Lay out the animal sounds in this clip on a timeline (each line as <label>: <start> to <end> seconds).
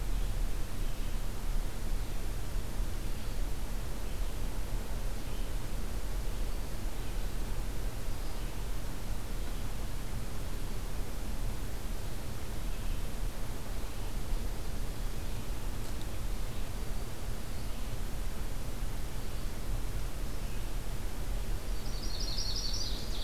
Red-eyed Vireo (Vireo olivaceus): 0.0 to 23.2 seconds
Yellow-rumped Warbler (Setophaga coronata): 21.6 to 22.9 seconds
Ovenbird (Seiurus aurocapilla): 22.6 to 23.2 seconds